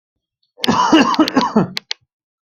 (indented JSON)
{
  "expert_labels": [
    {
      "quality": "good",
      "cough_type": "wet",
      "dyspnea": false,
      "wheezing": false,
      "stridor": false,
      "choking": false,
      "congestion": false,
      "nothing": true,
      "diagnosis": "lower respiratory tract infection",
      "severity": "mild"
    }
  ]
}